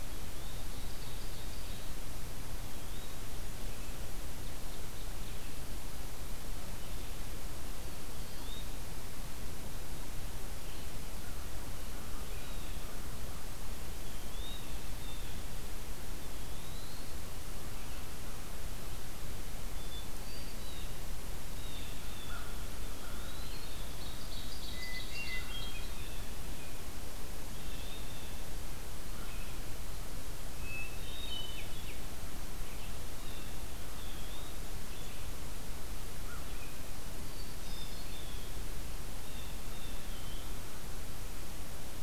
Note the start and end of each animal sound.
[0.05, 1.96] Ovenbird (Seiurus aurocapilla)
[2.40, 3.22] Eastern Wood-Pewee (Contopus virens)
[4.17, 5.79] Ovenbird (Seiurus aurocapilla)
[7.89, 8.76] Eastern Wood-Pewee (Contopus virens)
[12.30, 12.82] Blue Jay (Cyanocitta cristata)
[13.93, 14.63] Eastern Wood-Pewee (Contopus virens)
[14.81, 15.48] Blue Jay (Cyanocitta cristata)
[16.12, 17.19] Eastern Wood-Pewee (Contopus virens)
[19.61, 20.83] Hermit Thrush (Catharus guttatus)
[20.67, 22.67] Blue Jay (Cyanocitta cristata)
[22.17, 23.67] American Crow (Corvus brachyrhynchos)
[22.65, 23.74] Eastern Wood-Pewee (Contopus virens)
[23.34, 25.54] Ovenbird (Seiurus aurocapilla)
[24.48, 26.07] Hermit Thrush (Catharus guttatus)
[27.55, 28.28] Eastern Wood-Pewee (Contopus virens)
[30.44, 31.87] Hermit Thrush (Catharus guttatus)
[31.46, 42.03] Blue-headed Vireo (Vireo solitarius)
[33.08, 33.68] Blue Jay (Cyanocitta cristata)
[33.83, 34.65] Eastern Wood-Pewee (Contopus virens)
[36.06, 36.48] American Crow (Corvus brachyrhynchos)
[37.04, 38.22] Hermit Thrush (Catharus guttatus)
[37.43, 38.59] Blue Jay (Cyanocitta cristata)
[39.15, 40.03] Blue Jay (Cyanocitta cristata)
[39.96, 40.65] Eastern Wood-Pewee (Contopus virens)

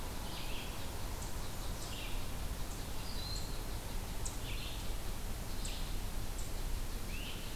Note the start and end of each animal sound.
[0.00, 7.55] Red-eyed Vireo (Vireo olivaceus)
[0.00, 7.55] unknown mammal
[2.87, 3.63] Broad-winged Hawk (Buteo platypterus)
[7.05, 7.41] Great Crested Flycatcher (Myiarchus crinitus)

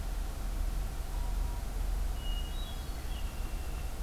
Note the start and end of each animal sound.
[2.10, 3.08] Hermit Thrush (Catharus guttatus)
[2.81, 4.02] Red-winged Blackbird (Agelaius phoeniceus)

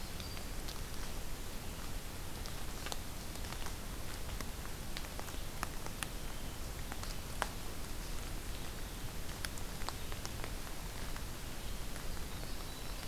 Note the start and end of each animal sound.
[0.00, 1.69] Winter Wren (Troglodytes hiemalis)
[3.21, 13.07] Red-eyed Vireo (Vireo olivaceus)
[12.03, 13.07] Winter Wren (Troglodytes hiemalis)

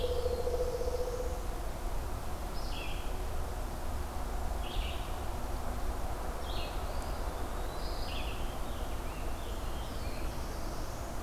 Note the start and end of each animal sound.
[0.00, 1.42] Pileated Woodpecker (Dryocopus pileatus)
[0.00, 1.46] Black-throated Blue Warbler (Setophaga caerulescens)
[0.00, 8.60] Red-eyed Vireo (Vireo olivaceus)
[6.78, 8.12] Eastern Wood-Pewee (Contopus virens)
[8.31, 10.39] American Robin (Turdus migratorius)
[9.16, 11.22] Black-throated Blue Warbler (Setophaga caerulescens)

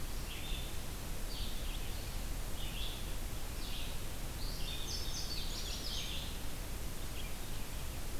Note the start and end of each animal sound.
[0.00, 8.20] Red-eyed Vireo (Vireo olivaceus)
[4.39, 6.25] Indigo Bunting (Passerina cyanea)

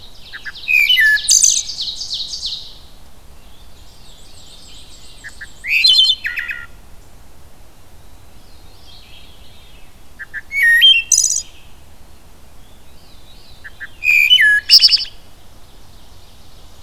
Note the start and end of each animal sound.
[0.00, 1.83] Wood Thrush (Hylocichla mustelina)
[0.00, 5.72] Ovenbird (Seiurus aurocapilla)
[0.00, 16.83] Red-eyed Vireo (Vireo olivaceus)
[3.33, 5.20] Veery (Catharus fuscescens)
[3.47, 6.14] Black-and-white Warbler (Mniotilta varia)
[4.94, 7.02] Wood Thrush (Hylocichla mustelina)
[8.18, 10.21] Veery (Catharus fuscescens)
[10.06, 11.55] Wood Thrush (Hylocichla mustelina)
[12.50, 13.83] Veery (Catharus fuscescens)
[13.60, 15.28] Wood Thrush (Hylocichla mustelina)
[15.51, 16.83] Ovenbird (Seiurus aurocapilla)

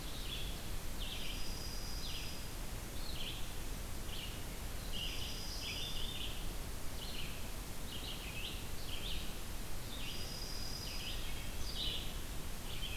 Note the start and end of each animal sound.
[0.00, 0.71] Ovenbird (Seiurus aurocapilla)
[0.00, 12.96] Red-eyed Vireo (Vireo olivaceus)
[1.01, 2.44] Dark-eyed Junco (Junco hyemalis)
[4.87, 6.13] Dark-eyed Junco (Junco hyemalis)
[9.86, 11.43] Dark-eyed Junco (Junco hyemalis)

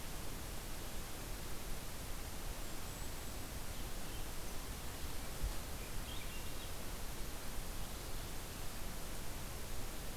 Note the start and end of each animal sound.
[2.45, 3.88] Golden-crowned Kinglet (Regulus satrapa)
[5.66, 6.84] Swainson's Thrush (Catharus ustulatus)

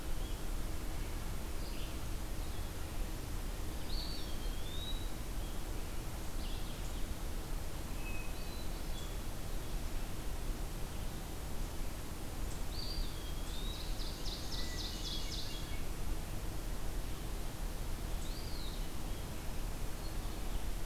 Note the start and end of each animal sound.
[0.00, 7.04] Red-eyed Vireo (Vireo olivaceus)
[3.77, 5.11] Eastern Wood-Pewee (Contopus virens)
[7.96, 9.38] Hermit Thrush (Catharus guttatus)
[12.59, 13.79] Eastern Wood-Pewee (Contopus virens)
[13.36, 15.81] Ovenbird (Seiurus aurocapilla)
[14.49, 15.93] Hermit Thrush (Catharus guttatus)
[18.00, 19.44] Eastern Wood-Pewee (Contopus virens)

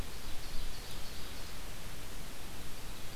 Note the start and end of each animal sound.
[0.00, 1.60] Ovenbird (Seiurus aurocapilla)

